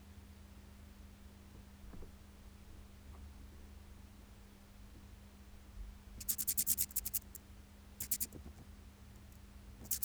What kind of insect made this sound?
orthopteran